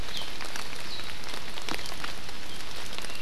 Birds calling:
Warbling White-eye (Zosterops japonicus)

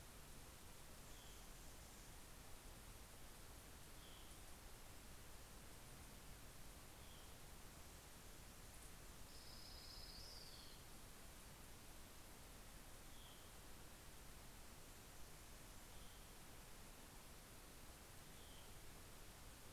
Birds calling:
Orange-crowned Warbler (Leiothlypis celata)
Hermit Thrush (Catharus guttatus)
Anna's Hummingbird (Calypte anna)

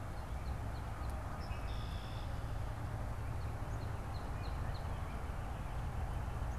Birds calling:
Northern Cardinal (Cardinalis cardinalis)
Red-winged Blackbird (Agelaius phoeniceus)

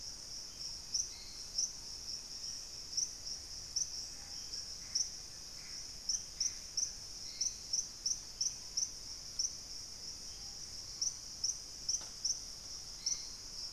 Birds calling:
Thrush-like Wren (Campylorhynchus turdinus)
Screaming Piha (Lipaugus vociferans)
Hauxwell's Thrush (Turdus hauxwelli)
Gray Antbird (Cercomacra cinerascens)
Black-faced Antthrush (Formicarius analis)

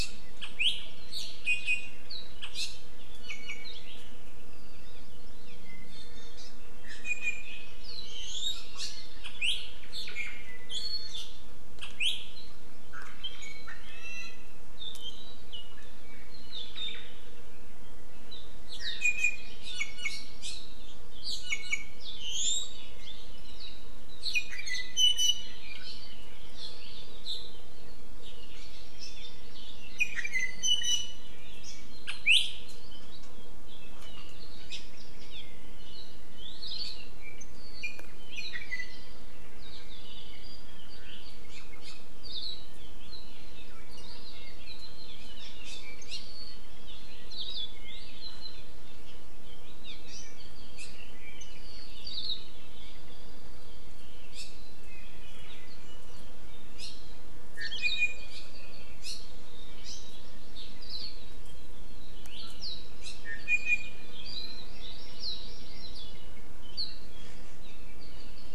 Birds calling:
Hawaii Akepa (Loxops coccineus)
Hawaii Amakihi (Chlorodrepanis virens)
Apapane (Himatione sanguinea)
Iiwi (Drepanis coccinea)
Omao (Myadestes obscurus)

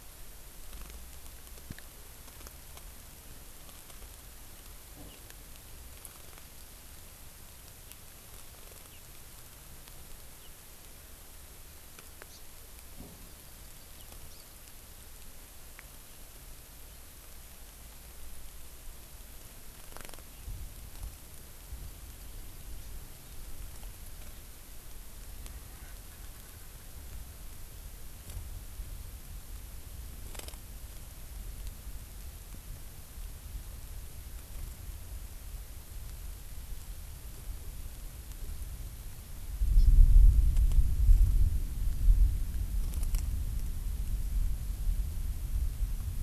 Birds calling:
Erckel's Francolin (Pternistis erckelii)
Hawaii Amakihi (Chlorodrepanis virens)

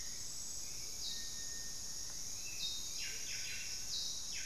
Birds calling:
Hauxwell's Thrush (Turdus hauxwelli)
Buff-breasted Wren (Cantorchilus leucotis)
Amazonian Motmot (Momotus momota)

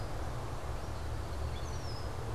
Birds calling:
Red-winged Blackbird (Agelaius phoeniceus)

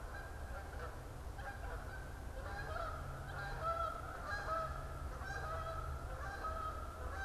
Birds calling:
Canada Goose (Branta canadensis)

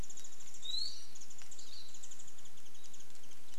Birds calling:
Iiwi (Drepanis coccinea)
Hawaii Akepa (Loxops coccineus)
Warbling White-eye (Zosterops japonicus)

